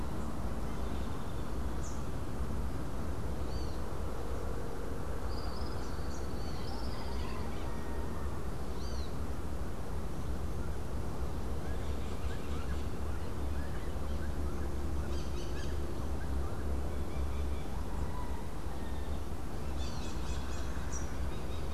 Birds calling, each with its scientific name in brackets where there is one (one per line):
Great Kiskadee (Pitangus sulphuratus)
Tropical Kingbird (Tyrannus melancholicus)
Crimson-fronted Parakeet (Psittacara finschi)